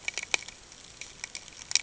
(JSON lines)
{"label": "ambient", "recorder": "HydroMoth"}